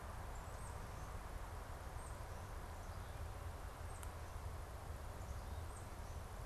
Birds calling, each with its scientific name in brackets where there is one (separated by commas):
Tufted Titmouse (Baeolophus bicolor)